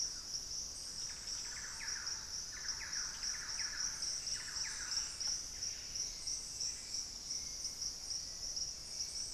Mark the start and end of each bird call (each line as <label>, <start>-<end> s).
Thrush-like Wren (Campylorhynchus turdinus), 0.0-5.2 s
Buff-breasted Wren (Cantorchilus leucotis), 5.1-6.4 s
Hauxwell's Thrush (Turdus hauxwelli), 5.9-9.3 s